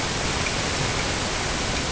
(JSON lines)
{"label": "ambient", "recorder": "HydroMoth"}